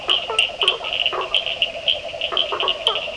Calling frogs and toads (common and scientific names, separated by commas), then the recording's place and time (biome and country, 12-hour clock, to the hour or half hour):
blacksmith tree frog (Boana faber), yellow cururu toad (Rhinella icterica), Cochran's lime tree frog (Sphaenorhynchus surdus)
Atlantic Forest, Brazil, ~8pm